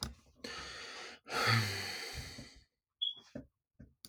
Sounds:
Sigh